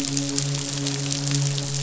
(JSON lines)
{"label": "biophony, midshipman", "recorder": "SoundTrap 500"}